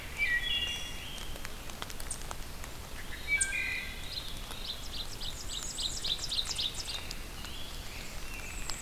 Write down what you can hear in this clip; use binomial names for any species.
Hylocichla mustelina, Tamias striatus, Catharus fuscescens, Seiurus aurocapilla, Setophaga castanea, Pheucticus ludovicianus, Setophaga caerulescens